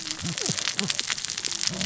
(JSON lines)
{"label": "biophony, cascading saw", "recorder": "SoundTrap 600 or HydroMoth"}